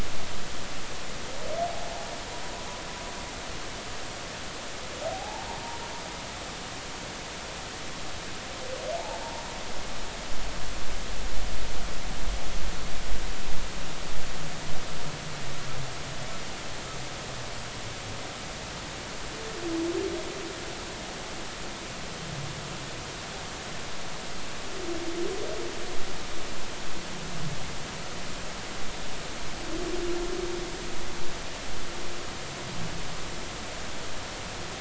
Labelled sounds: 5.0	5.5	humpback whale, 0.80 to 0.96 kHz
9.0	9.2	humpback whale, 0.80 to 0.96 kHz

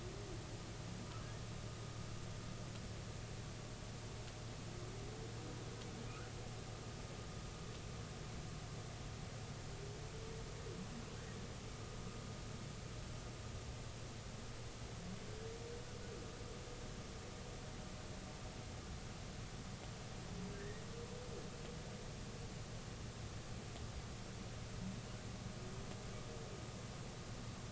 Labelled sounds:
20.5	20.8	humpback whale, 1.5 to 2.0 kHz

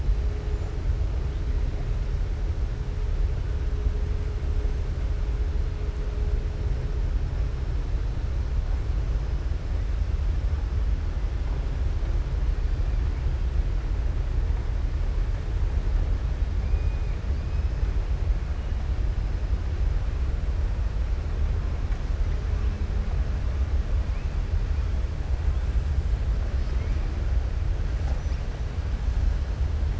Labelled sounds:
16.6	17.8	killer whale, southern resident, 2.2 to 5.3 kHz

